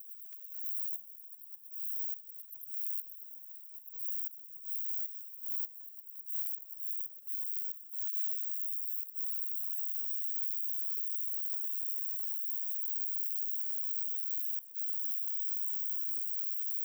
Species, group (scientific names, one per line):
Roeseliana roeselii
Orthoptera